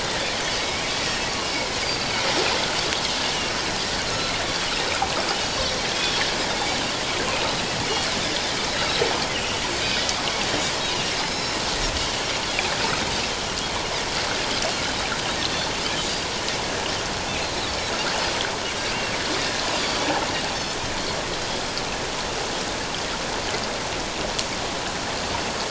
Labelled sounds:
1.8	2.2	Pacific white-sided dolphin, 4.5 to 4.9 kHz
4.1	4.7	Pacific white-sided dolphin, 1.3 to 3.6 kHz
5.4	6.2	Pacific white-sided dolphin, 3.2 to 5.8 kHz
9.3	10.1	Pacific white-sided dolphin, 2.8 to 5.2 kHz
11.2	11.6	Pacific white-sided dolphin, 3.9 to 5.4 kHz
19.7	20.0	Pacific white-sided dolphin, 4.5 to 4.9 kHz

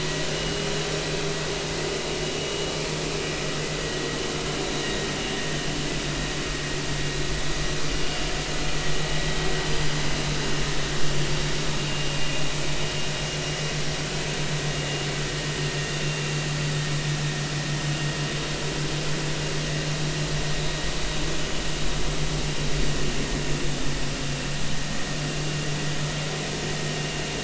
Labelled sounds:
0.3	0.7	vessel noise, 2.8 to 2.9 kHz
4.8	5.1	vessel noise, 1.8 to 2.0 kHz
12.1	12.4	vessel noise, 2.3 to 2.6 kHz

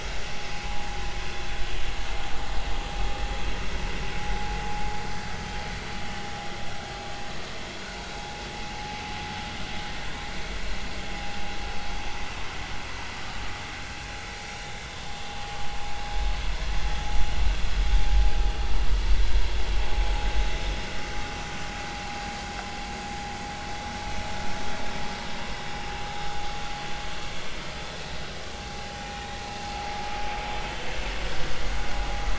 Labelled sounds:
6.0	6.3	vessel noise, 2.8 to 3.0 kHz
14.5	14.7	vessel noise, 3.68 to 3.74 kHz

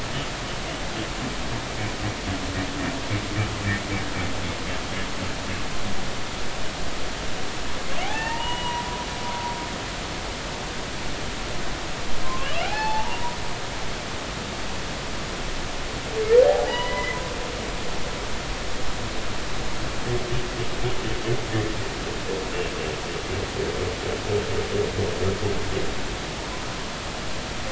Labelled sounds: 8.0	8.9	humpback whale, 0.80 to 3.0 kHz
12.2	13.4	humpback whale, 0.80 to 4.4 kHz
16.5	17.2	humpback whale, 0.80 to 3.0 kHz
26.4	26.6	humpback whale, 0.83 to 1.1 kHz

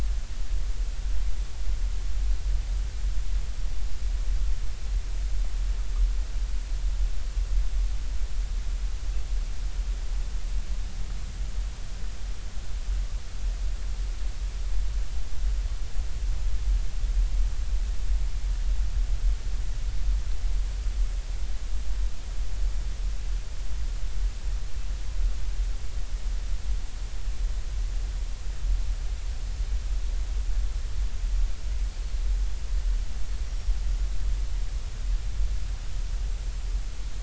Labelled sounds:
33.5	33.7	Pacific white-sided dolphin, 5.5 to 5.7 kHz

